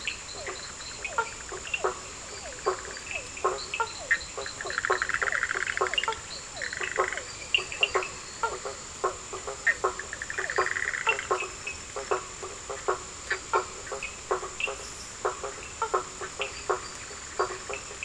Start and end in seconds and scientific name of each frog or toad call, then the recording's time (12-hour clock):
0.0	7.1	Boana leptolineata
0.0	10.9	Physalaemus cuvieri
0.0	18.0	Boana bischoffi
0.0	18.0	Boana faber
0.0	18.0	Sphaenorhynchus surdus
2.3	3.2	Dendropsophus minutus
7.3	9.3	Elachistocleis bicolor
10.4	10.9	Dendropsophus minutus
11:15pm